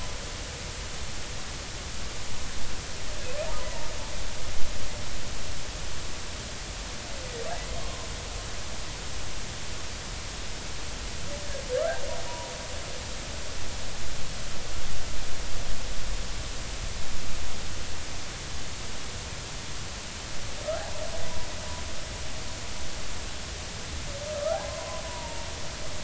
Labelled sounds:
7.8	8.1	humpback whale, 0.96 to 1.1 kHz
12.3	12.5	humpback whale, 0.90 to 1.0 kHz
20.7	21.0	humpback whale, 0.80 to 1.1 kHz
24.7	25.5	humpback whale, 0.86 to 1.1 kHz

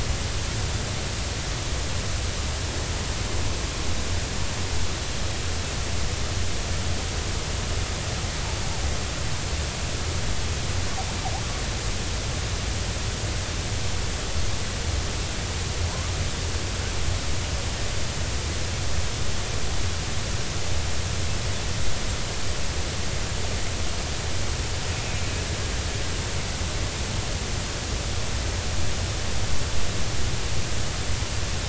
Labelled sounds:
24.9	25.2	killer whale, Bigg's (transient), 2.1 to 2.6 kHz

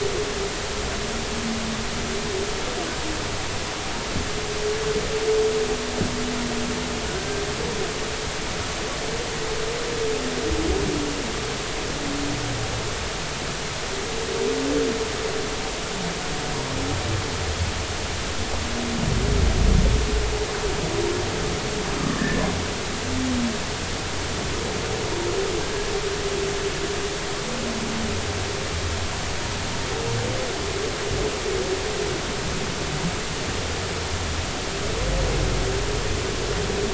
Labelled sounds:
7.2	7.4	humpback whale, 1.5 to 1.6 kHz
22.1	22.4	humpback whale, 1.5 to 1.9 kHz

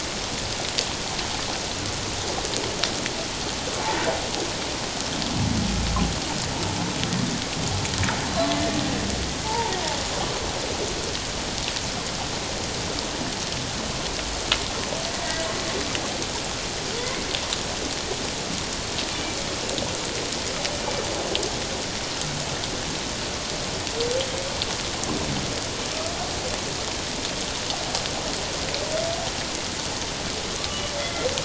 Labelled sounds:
9.4	9.7	humpback whale, 0.81 to 1.0 kHz
19.1	19.4	humpback whale, 2.3 to 2.4 kHz
31.0	31.3	humpback whale, 1.9 to 2.1 kHz

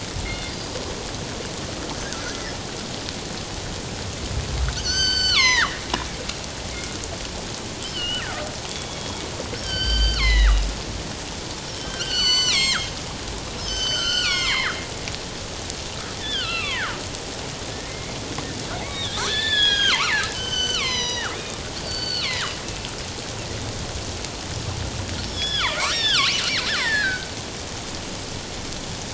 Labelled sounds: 0.2	0.5	killer whale, northern resident, G clan, 2.0 to 2.2 kHz
4.8	5.8	killer whale, northern resident, G clan, 0.88 to 7.8 kHz
7.8	9.2	killer whale, northern resident, G clan, 1.2 to 3.5 kHz
9.6	10.7	killer whale, northern resident, G clan, 0.94 to 5.6 kHz
11.7	12.9	killer whale, northern resident, G clan, 0.94 to 7.9 kHz
13.6	14.8	killer whale, northern resident, G clan, 0.94 to 7.7 kHz
16.2	18.1	killer whale, northern resident, G clan, 0.84 to 4.9 kHz
18.8	22.5	killer whale, northern resident, G clan, 0.84 to 7.8 kHz
25.2	26.4	killer whale, northern resident, G clan, 0.91 to 5.9 kHz
26.7	27.3	killer whale, northern resident, G clan, 0.84 to 2.2 kHz

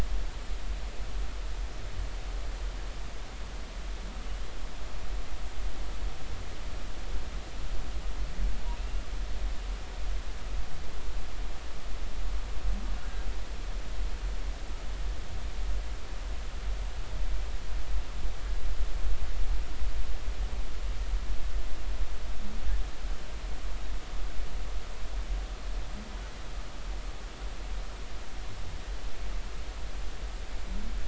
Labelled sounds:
8.8	9.0	humpback whale, 2.5 to 2.8 kHz

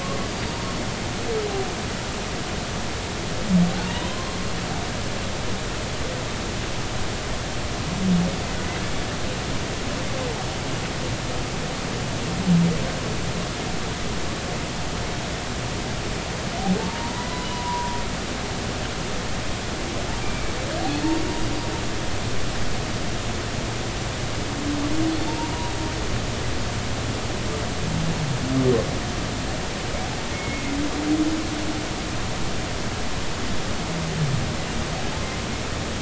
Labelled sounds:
0.0	0.6	humpback whale, 1.0 to 4.7 kHz
4.1	4.4	humpback whale, 0.99 to 1.1 kHz
16.8	18.0	humpback whale, 0.86 to 4.1 kHz
20.2	20.5	humpback whale, 2.2 to 2.4 kHz
25.1	25.7	humpback whale, 0.86 to 4.6 kHz
30.3	30.6	humpback whale, 2.1 to 2.2 kHz

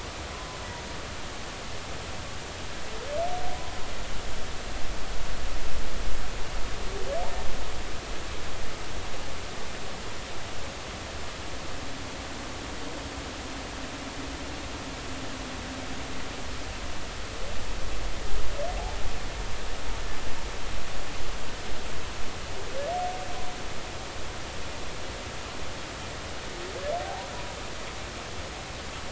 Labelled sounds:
27.0	27.3	humpback whale, 0.80 to 1.0 kHz

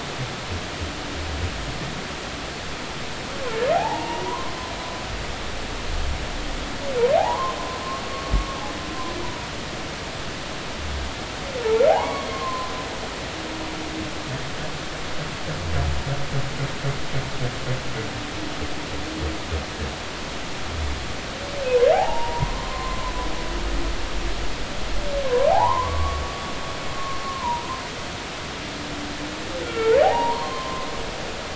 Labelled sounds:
3.7	4.5	humpback whale, 0.80 to 2.9 kHz
7.2	7.6	humpback whale, 0.80 to 1.1 kHz
9.2	9.5	humpback whale, 0.90 to 1.0 kHz
11.9	12.7	humpback whale, 0.80 to 2.3 kHz
22.9	24.1	humpback whale, 0.80 to 1.1 kHz
25.2	26.2	humpback whale, 0.80 to 1.2 kHz
27.2	27.8	humpback whale, 0.86 to 1.2 kHz
29.6	30.9	humpback whale, 0.80 to 3.2 kHz

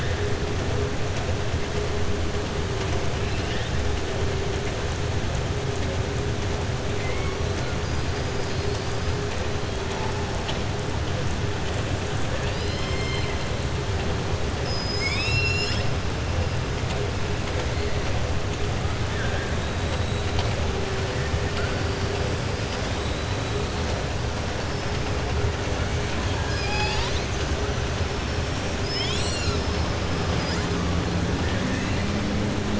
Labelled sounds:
6.9	7.4	killer whale, southern resident, 1.1 to 2.7 kHz
12.3	13.4	killer whale, southern resident, 1.7 to 5.3 kHz
19.1	19.5	killer whale, southern resident, 0.62 to 1.9 kHz
26.3	27.5	killer whale, southern resident, 0.84 to 7.6 kHz

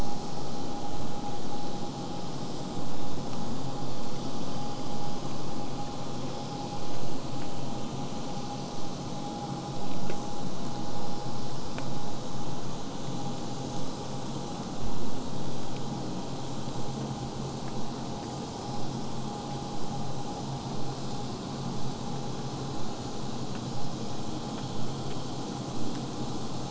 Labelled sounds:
21.7	26.7	vessel noise, 0 to 8.0 kHz

